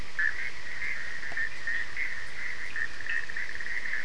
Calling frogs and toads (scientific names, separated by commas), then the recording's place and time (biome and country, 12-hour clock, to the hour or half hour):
Boana bischoffi, Sphaenorhynchus surdus
Atlantic Forest, Brazil, 2am